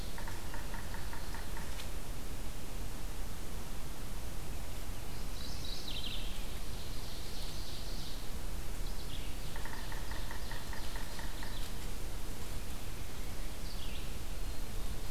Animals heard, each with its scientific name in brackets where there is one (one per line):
Mourning Warbler (Geothlypis philadelphia)
Ovenbird (Seiurus aurocapilla)
Red-eyed Vireo (Vireo olivaceus)
Yellow-bellied Sapsucker (Sphyrapicus varius)